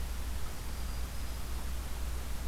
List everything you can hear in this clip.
Black-throated Green Warbler